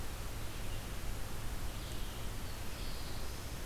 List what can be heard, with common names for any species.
Red-eyed Vireo